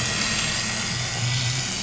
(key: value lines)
label: anthrophony, boat engine
recorder: SoundTrap 500